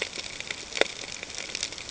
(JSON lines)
{"label": "ambient", "recorder": "HydroMoth"}